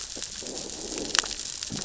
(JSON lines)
{"label": "biophony, growl", "recorder": "SoundTrap 600 or HydroMoth"}